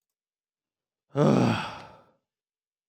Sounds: Sigh